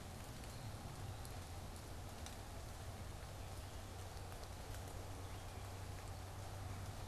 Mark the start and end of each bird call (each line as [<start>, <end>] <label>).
[0.00, 7.07] unidentified bird
[0.34, 1.54] Eastern Wood-Pewee (Contopus virens)